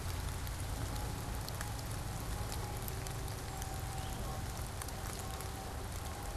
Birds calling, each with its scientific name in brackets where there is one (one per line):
Eastern Towhee (Pipilo erythrophthalmus)